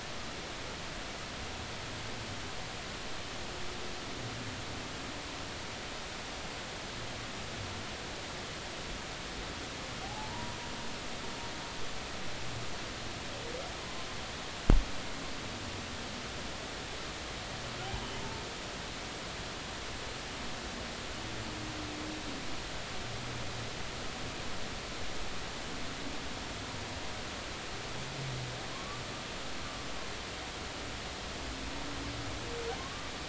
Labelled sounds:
10.0	10.6	humpback whale, 0.80 to 1.0 kHz
28.7	29.0	humpback whale, 0.99 to 1.2 kHz
32.8	33.1	humpback whale, 1.0 to 1.2 kHz

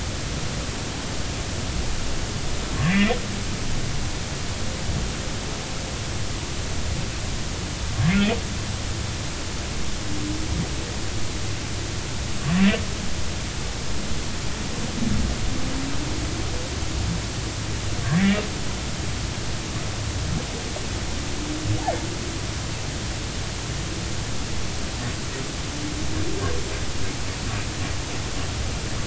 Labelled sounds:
2.8	3.1	humpback whale, 1.6 to 2.8 kHz
8.1	8.4	humpback whale, 2.3 to 2.7 kHz
18.0	18.4	humpback whale, 1.5 to 2.0 kHz

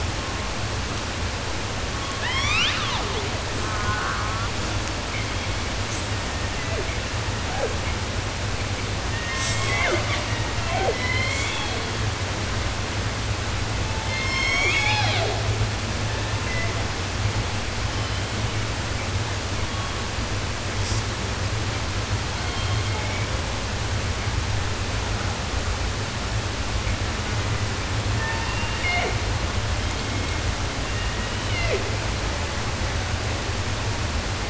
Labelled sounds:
0.0	0.9	killer whale, 0.19 to 1.3 kHz
1.9	3.5	killer whale, southern resident, 0.10 to 8.0 kHz
3.6	4.6	killer whale, southern resident, J pod, call S04, 0.49 to 2.2 kHz
5.0	6.1	killer whale, 1.8 to 8.0 kHz
6.0	7.8	killer whale, southern resident, J pod, call S01, 0.14 to 3.3 kHz
9.1	12.1	killer whale, southern resident, J pod, call S01 and call S05, 0.14 to 8.0 kHz
13.7	15.6	killer whale, southern resident, J pod, call S01, 0.10 to 8.0 kHz
15.9	17.0	killer whale, 0.12 to 3.3 kHz
17.6	18.7	killer whale, 1.2 to 5.6 kHz
19.5	20.2	killer whale, 0.66 to 3.6 kHz
20.7	21.0	killer whale, southern resident, J pod, call S05, 4.4 to 8.0 kHz
22.3	23.6	killer whale, southern resident, 0.10 to 6.1 kHz
28.1	29.4	killer whale, southern resident, J pod, call S01, 0.07 to 5.1 kHz
29.7	30.8	killer whale, 1.5 to 5.6 kHz
30.8	32.1	killer whale, southern resident, J pod, call S01, 0.24 to 6.1 kHz

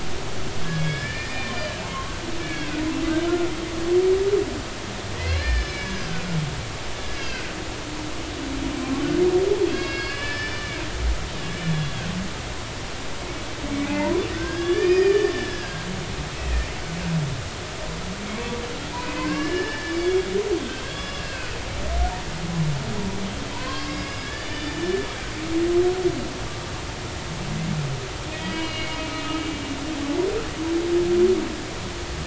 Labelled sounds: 0.7	2.1	humpback whale, 0.99 to 5.1 kHz
2.4	2.7	humpback whale, 1.6 to 2.4 kHz
5.1	6.2	humpback whale, 1.4 to 5.3 kHz
7.1	7.4	humpback whale, 2.5 to 5.1 kHz
9.6	11.0	humpback whale, 1.6 to 5.3 kHz
11.7	12.0	humpback whale, 3.2 to 3.5 kHz
13.8	15.9	humpback whale, 0.83 to 5.3 kHz
19.0	20.3	humpback whale, 0.90 to 5.3 kHz
20.9	21.6	humpback whale, 1.4 to 5.2 kHz
23.5	25.1	humpback whale, 0.90 to 5.2 kHz
28.3	29.0	humpback whale, 1.9 to 4.2 kHz

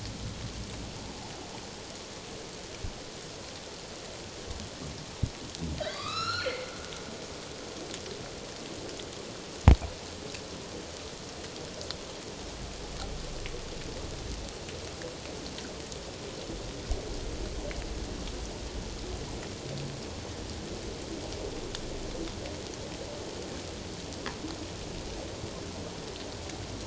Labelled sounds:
5.8	6.7	humpback whale, 1.1 to 7.0 kHz

